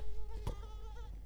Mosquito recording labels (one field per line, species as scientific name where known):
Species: Culex quinquefasciatus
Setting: cup